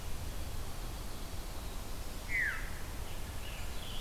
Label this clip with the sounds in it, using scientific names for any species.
Catharus fuscescens, Piranga olivacea